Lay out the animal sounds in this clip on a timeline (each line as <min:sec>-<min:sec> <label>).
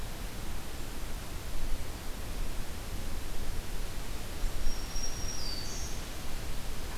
0:04.5-0:06.1 Black-throated Green Warbler (Setophaga virens)